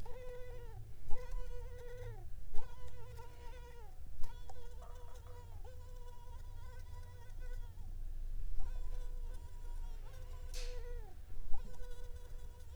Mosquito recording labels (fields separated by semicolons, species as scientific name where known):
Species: Culex pipiens complex; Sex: female; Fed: unfed; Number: one; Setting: cup